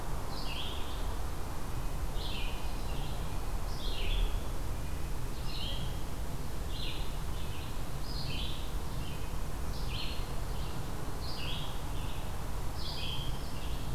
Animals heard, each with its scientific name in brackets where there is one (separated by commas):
Red-breasted Nuthatch (Sitta canadensis), Red-eyed Vireo (Vireo olivaceus)